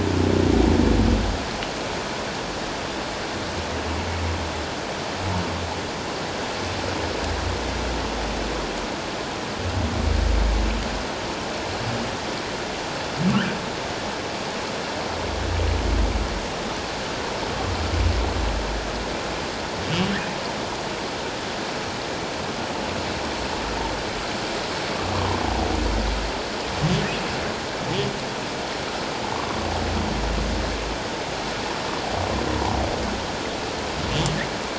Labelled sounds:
29.3	29.6	humpback whale, 0.78 to 1.2 kHz

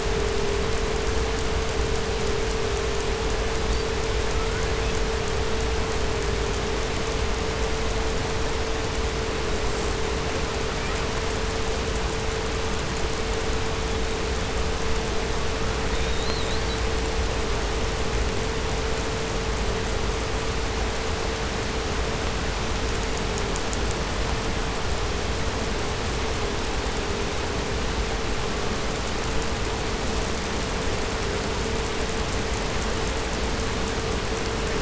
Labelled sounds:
3.5	5.1	killer whale, 0.85 to 8.0 kHz
10.6	11.2	killer whale, 0.72 to 3.2 kHz
15.4	16.9	killer whale, 0.56 to 4.8 kHz

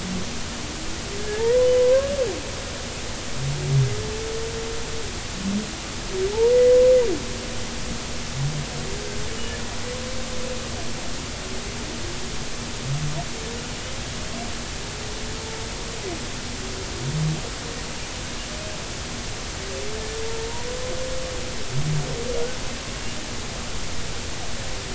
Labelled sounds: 1.2	2.1	humpback whale, 0.86 to 2.0 kHz

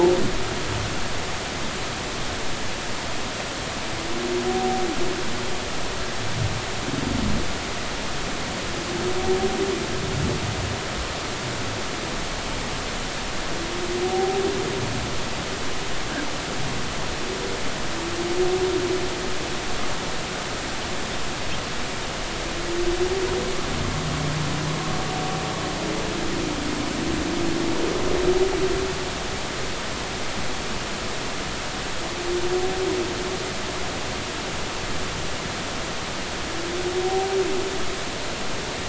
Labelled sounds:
14.0	14.4	humpback whale, 0.80 to 0.83 kHz

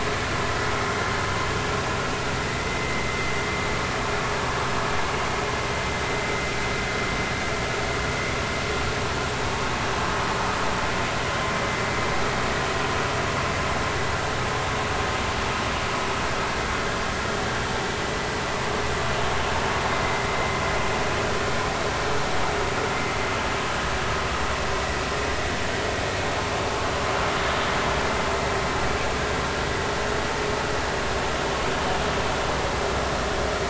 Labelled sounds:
2.6	3.0	vessel noise, 2.0 to 2.1 kHz

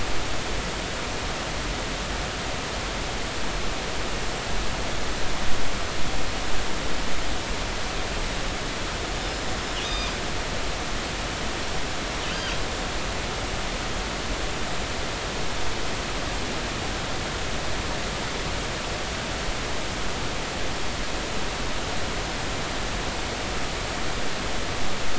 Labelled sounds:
9.2	10.2	killer whale, northern resident, 2.4 to 5.3 kHz
12.2	12.6	killer whale, northern resident, 2.9 to 3.2 kHz

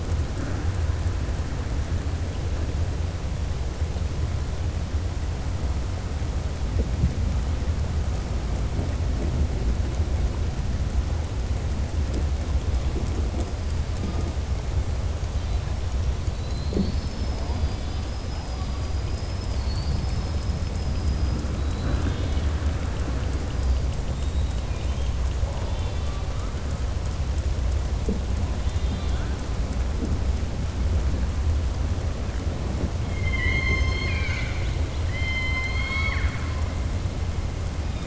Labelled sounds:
20.6	21.4	killer whale, southern resident, 4.9 to 5.2 kHz
24.1	25.1	killer whale, southern resident, 2.3 to 3.9 kHz
25.6	26.2	killer whale, southern resident, 1.9 to 4.3 kHz
28.6	29.3	killer whale, southern resident, 1.3 to 4.8 kHz
33.2	36.5	killer whale, southern resident, 0.42 to 6.5 kHz

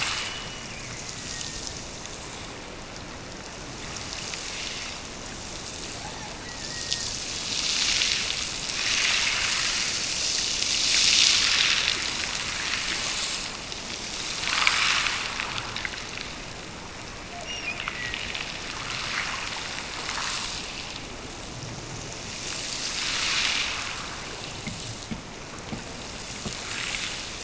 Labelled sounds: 0.0	1.8	killer whale, Bigg's (transient), Gulf of Alaska transient, 1.7 to 3.1 kHz
6.0	7.1	killer whale, Bigg's (transient), Gulf of Alaska transient, 0.52 to 2.2 kHz
17.4	18.2	killer whale, Bigg's (transient), Gulf of Alaska transient, 1.8 to 2.9 kHz

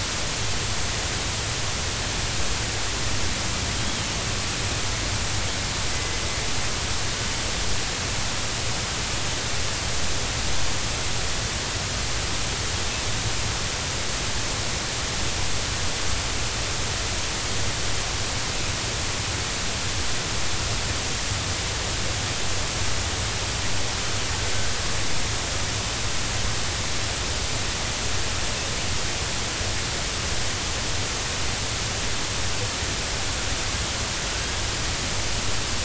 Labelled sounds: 5.9	6.2	killer whale, northern resident, 2.0 to 2.1 kHz

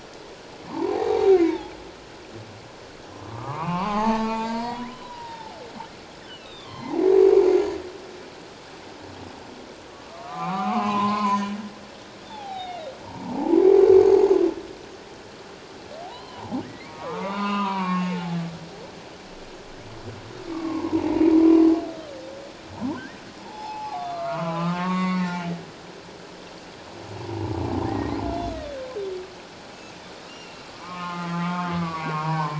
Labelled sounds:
0.7	1.7	humpback whale, 0.78 to 4.0 kHz
3.2	5.6	humpback whale, 0.78 to 7.2 kHz
6.4	7.6	humpback whale, 0.78 to 4.1 kHz
10.1	11.6	humpback whale, 0.78 to 6.8 kHz
12.2	13.6	humpback whale, 0.78 to 3.9 kHz
16.0	18.4	humpback whale, 0.78 to 3.9 kHz
20.5	21.6	humpback whale, 0.84 to 1.2 kHz
23.4	25.5	humpback whale, 0.78 to 7.4 kHz
27.8	28.1	humpback whale, 1.6 to 2.0 kHz
29.7	30.0	humpback whale, 2.5 to 2.8 kHz
30.3	32.5	humpback whale, 0.78 to 3.2 kHz

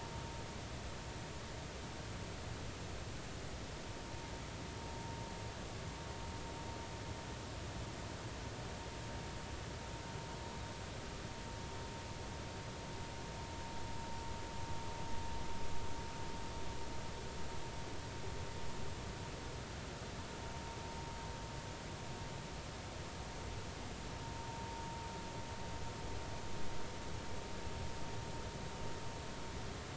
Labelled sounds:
24.4	24.6	vessel noise, 0.90 to 0.96 kHz

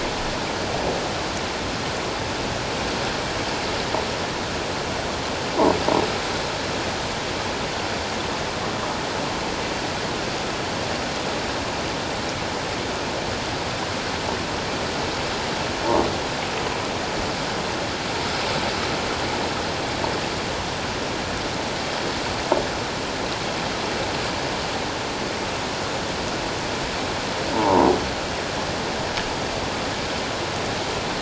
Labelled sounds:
27.5	27.9	croaking sound likely from a nearby submerged object, 0.78 to 1.1 kHz

